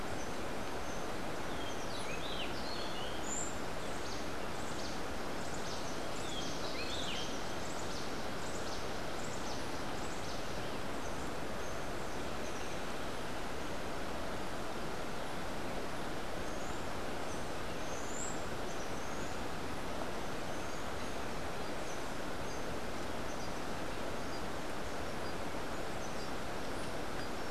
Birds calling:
Rufous-breasted Wren (Pheugopedius rutilus)
Buff-throated Saltator (Saltator maximus)

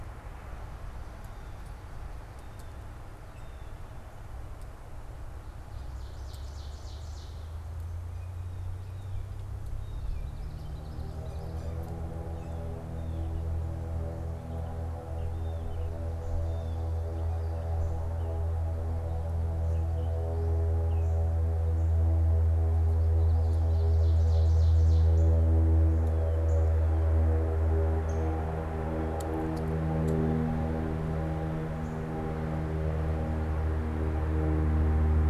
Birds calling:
Ovenbird (Seiurus aurocapilla)
Downy Woodpecker (Dryobates pubescens)
Northern Cardinal (Cardinalis cardinalis)
Blue Jay (Cyanocitta cristata)
Gray Catbird (Dumetella carolinensis)

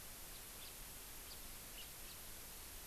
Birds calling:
House Finch (Haemorhous mexicanus)

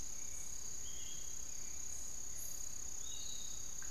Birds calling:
Piratic Flycatcher (Legatus leucophaius)
Hauxwell's Thrush (Turdus hauxwelli)

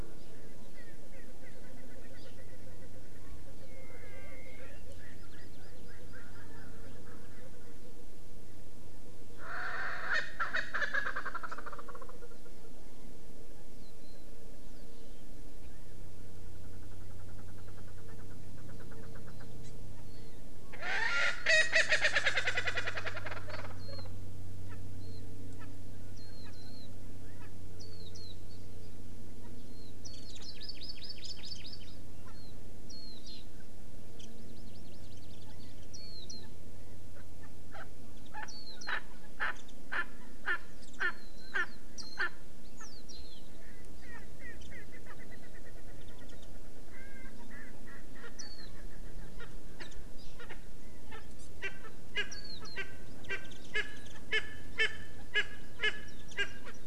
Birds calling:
Chinese Hwamei (Garrulax canorus)
Warbling White-eye (Zosterops japonicus)
Hawaii Amakihi (Chlorodrepanis virens)
Erckel's Francolin (Pternistis erckelii)

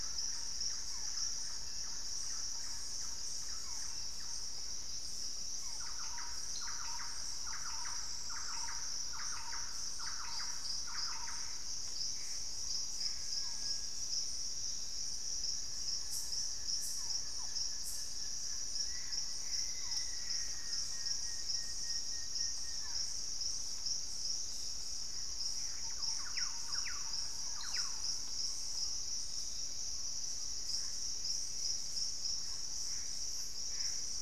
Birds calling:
Gray Antbird (Cercomacra cinerascens)
Hauxwell's Thrush (Turdus hauxwelli)
Buff-throated Woodcreeper (Xiphorhynchus guttatus)
Collared Trogon (Trogon collaris)
Russet-backed Oropendola (Psarocolius angustifrons)
Thrush-like Wren (Campylorhynchus turdinus)
Barred Forest-Falcon (Micrastur ruficollis)
Black-faced Antthrush (Formicarius analis)
Purple-throated Fruitcrow (Querula purpurata)
Plain-winged Antshrike (Thamnophilus schistaceus)

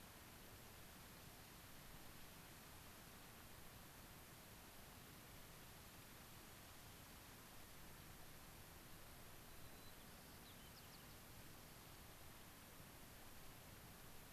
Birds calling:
White-crowned Sparrow (Zonotrichia leucophrys)

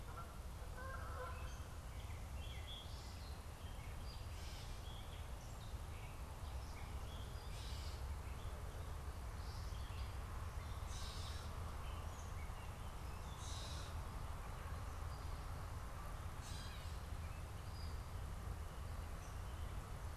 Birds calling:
Gray Catbird (Dumetella carolinensis)
Canada Goose (Branta canadensis)

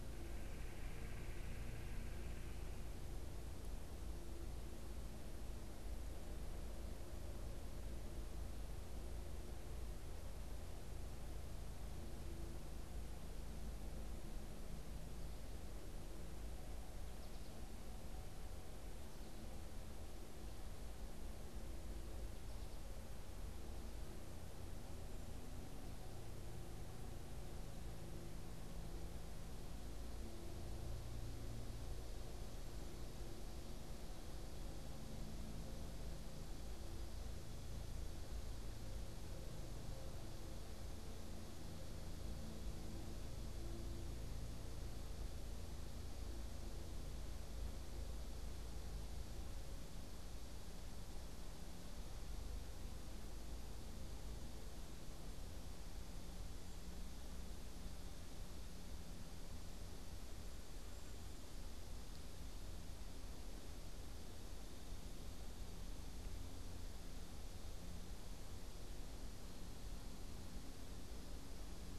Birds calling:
Red-bellied Woodpecker (Melanerpes carolinus)

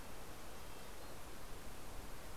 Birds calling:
Red-breasted Nuthatch (Sitta canadensis)

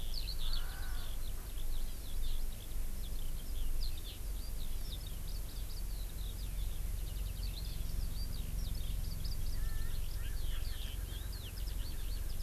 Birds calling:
Erckel's Francolin (Pternistis erckelii)
Hawaii Amakihi (Chlorodrepanis virens)
Eurasian Skylark (Alauda arvensis)

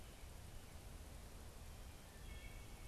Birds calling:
Wood Thrush (Hylocichla mustelina)

